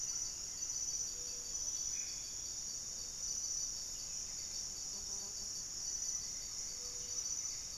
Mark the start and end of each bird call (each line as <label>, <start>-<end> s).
unidentified bird, 0.0-0.7 s
Gray-fronted Dove (Leptotila rufaxilla), 0.0-7.8 s
Great Antshrike (Taraba major), 0.0-7.8 s
Black-faced Antthrush (Formicarius analis), 1.7-2.3 s
unidentified bird, 3.8-4.8 s
Plumbeous Antbird (Myrmelastes hyperythrus), 5.7-7.8 s